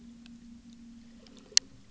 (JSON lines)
{"label": "anthrophony, boat engine", "recorder": "SoundTrap 300"}